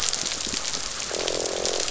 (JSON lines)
{"label": "biophony, croak", "recorder": "SoundTrap 500"}